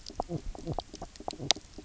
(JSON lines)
{"label": "biophony, knock croak", "recorder": "SoundTrap 300"}